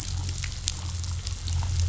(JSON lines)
{"label": "anthrophony, boat engine", "recorder": "SoundTrap 500"}